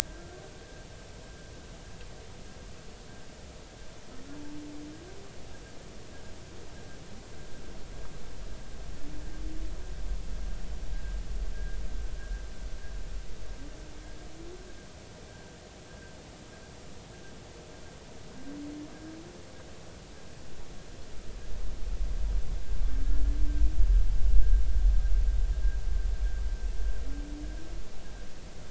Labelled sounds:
10.9	11.2	vessel noise, 1.5 to 1.7 kHz

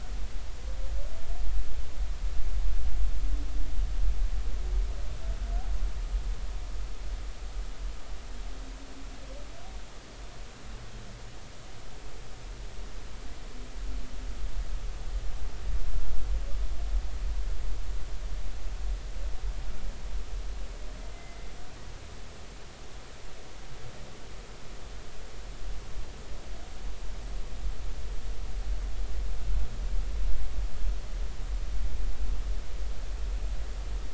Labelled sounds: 21.1	21.4	humpback whale, 2.0 to 2.1 kHz

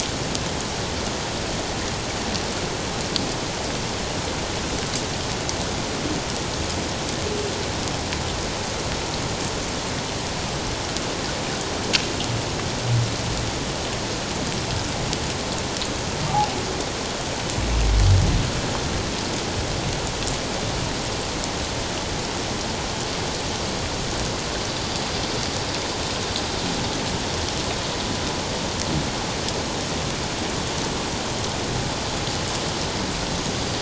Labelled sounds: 16.3	16.6	humpback whale, 0.78 to 0.91 kHz

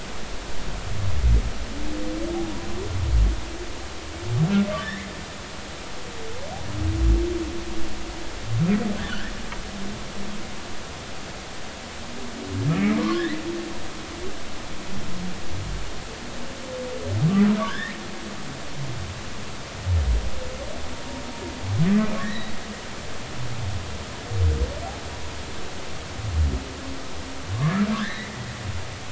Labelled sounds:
4.8	5.1	humpback whale, 1.7 to 2.3 kHz
9.0	9.3	humpback whale, 1.3 to 1.9 kHz
12.9	13.2	humpback whale, 0.96 to 1.2 kHz
17.6	17.9	humpback whale, 1.4 to 3.8 kHz
22.2	22.5	humpback whale, 1.6 to 4.0 kHz
28.0	28.3	humpback whale, 1.5 to 4.1 kHz

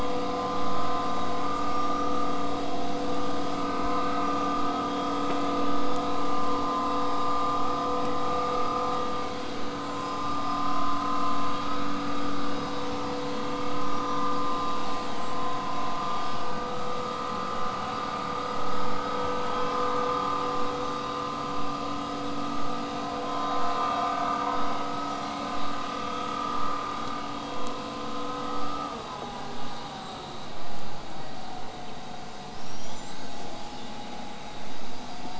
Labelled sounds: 1.5	1.7	killer whale, southern resident, J pod, call S05, 5.9 to 8.0 kHz
8.8	9.4	killer whale, southern resident, whistle, 7.8 to 8.0 kHz
29.9	31.1	killer whale, southern resident, whistle, 7.3 to 8.0 kHz
32.5	33.6	killer whale, southern resident, whistle, 2.8 to 8.0 kHz

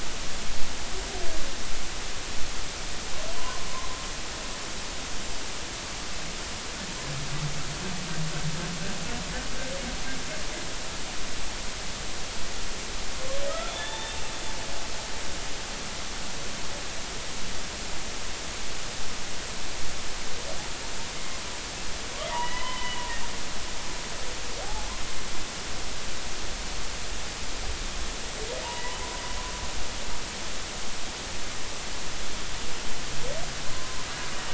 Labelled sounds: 3.3	3.6	humpback whale, 0.96 to 1.2 kHz
13.5	14.2	humpback whale, 1.2 to 3.7 kHz
21.1	21.4	humpback whale, 2.0 to 2.2 kHz
22.3	23.1	humpback whale, 0.96 to 3.1 kHz
24.6	24.9	humpback whale, 0.80 to 0.93 kHz
28.6	29.0	humpback whale, 0.83 to 1.1 kHz
33.7	34.0	humpback whale, 0.99 to 1.1 kHz

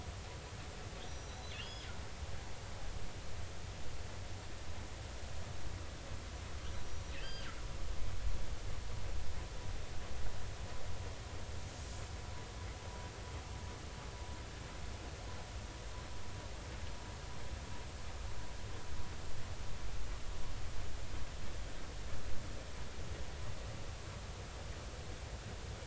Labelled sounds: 1.1	1.9	killer whale, northern resident, G clan, GI subclan, call N23i, 2.7 to 6.0 kHz
7.2	7.5	killer whale, northern resident, G clan, GI subclan, call N23i, 2.8 to 4.9 kHz

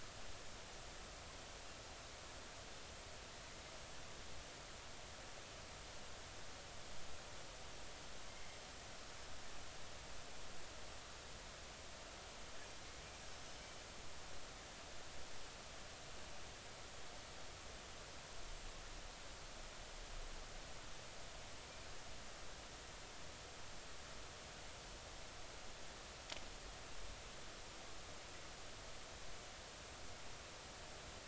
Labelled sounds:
13.3	13.6	Pacific white-sided dolphin, 5.1 to 5.5 kHz

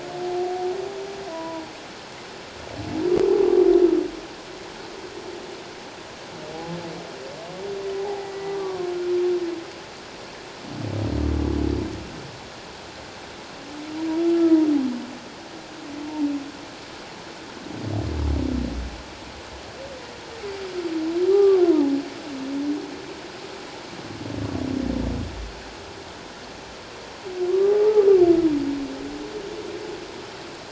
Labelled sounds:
1.3	1.6	humpback whale, 0.91 to 1.0 kHz
8.0	8.9	humpback whale, 0.78 to 1.2 kHz
14.2	14.6	humpback whale, 1.2 to 1.4 kHz
21.3	21.6	humpback whale, 1.1 to 1.2 kHz
27.5	28.0	humpback whale, 0.78 to 1.2 kHz

